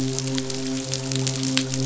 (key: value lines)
label: biophony, midshipman
recorder: SoundTrap 500